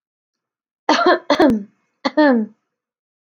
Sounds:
Cough